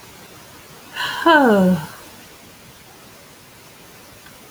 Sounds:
Sigh